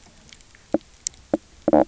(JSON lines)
{"label": "biophony, knock croak", "recorder": "SoundTrap 300"}